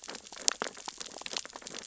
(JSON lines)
{"label": "biophony, sea urchins (Echinidae)", "recorder": "SoundTrap 600 or HydroMoth"}